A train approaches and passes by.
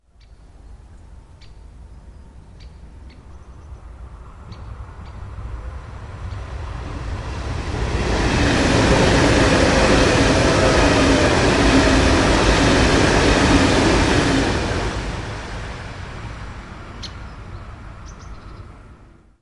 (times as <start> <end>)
4.2 19.0